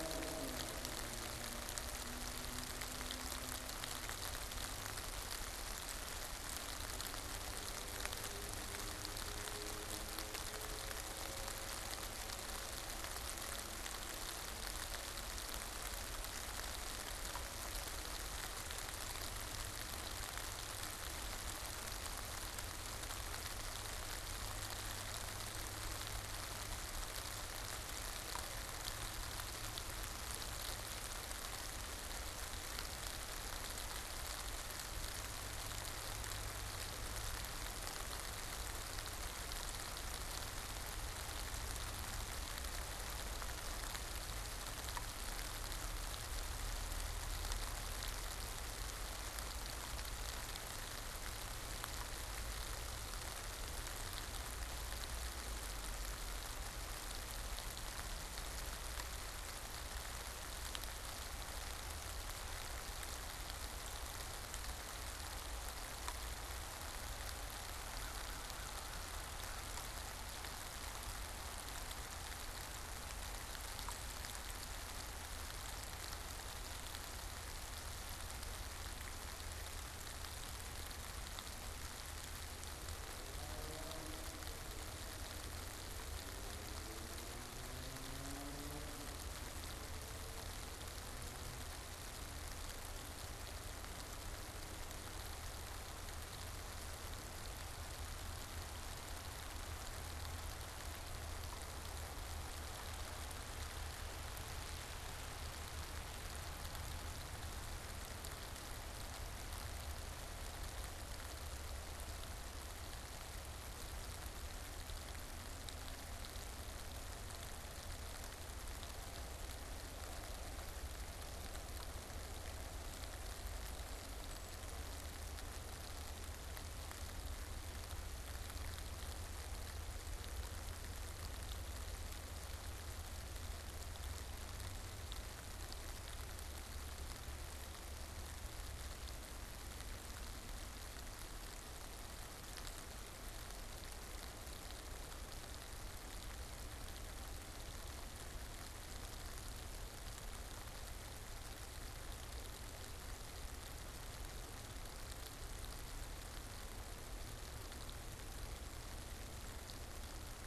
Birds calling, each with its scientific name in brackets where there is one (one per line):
Brown Creeper (Certhia americana)